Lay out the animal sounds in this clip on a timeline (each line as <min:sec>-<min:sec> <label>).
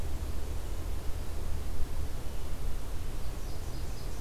0:02.1-0:04.2 Red-eyed Vireo (Vireo olivaceus)
0:03.4-0:04.2 Nashville Warbler (Leiothlypis ruficapilla)